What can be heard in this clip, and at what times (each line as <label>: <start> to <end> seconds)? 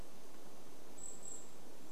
Golden-crowned Kinglet call: 0 to 2 seconds